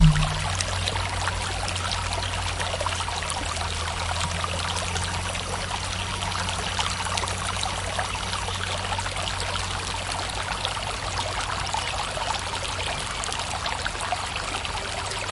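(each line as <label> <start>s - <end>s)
Water flows continuously through a narrow channel, creating a steady, gurgling sound. 0.0s - 15.3s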